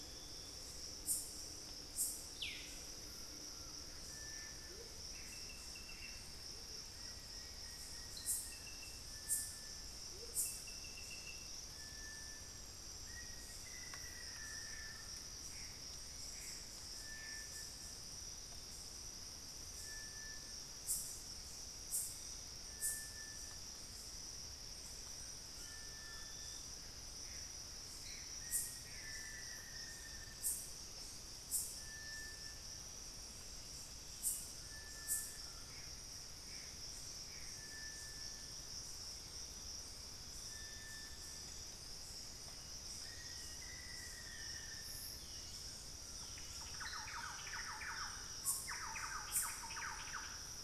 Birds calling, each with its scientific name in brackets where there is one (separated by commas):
Thrush-like Wren (Campylorhynchus turdinus), Plain-winged Antshrike (Thamnophilus schistaceus), Collared Trogon (Trogon collaris), unidentified bird, Gray Antbird (Cercomacra cinerascens), Amazonian Motmot (Momotus momota), Black-faced Antthrush (Formicarius analis), Long-winged Antwren (Myrmotherula longipennis)